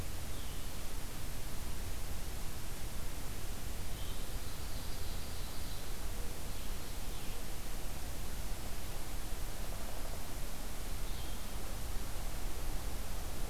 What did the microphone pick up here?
Blue-headed Vireo, Ovenbird, Downy Woodpecker